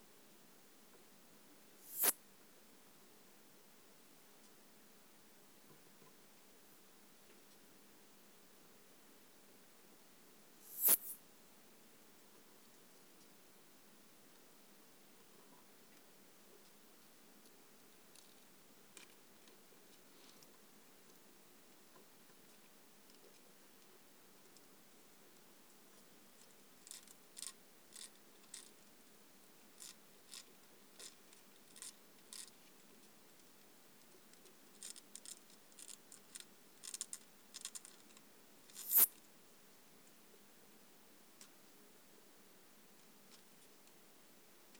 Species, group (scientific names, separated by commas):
Poecilimon nonveilleri, Orthoptera